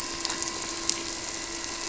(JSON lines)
{"label": "anthrophony, boat engine", "recorder": "SoundTrap 300"}